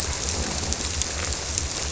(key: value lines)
label: biophony
recorder: SoundTrap 300